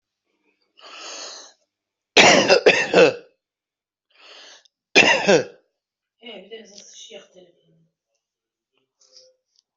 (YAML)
expert_labels:
- quality: ok
  cough_type: unknown
  dyspnea: false
  wheezing: false
  stridor: false
  choking: false
  congestion: false
  nothing: true
  diagnosis: healthy cough
  severity: pseudocough/healthy cough
age: 42
gender: female
respiratory_condition: true
fever_muscle_pain: false
status: healthy